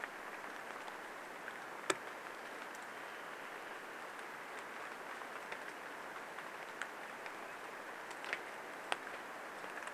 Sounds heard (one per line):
rain